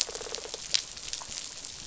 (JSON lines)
{"label": "biophony, rattle response", "recorder": "SoundTrap 500"}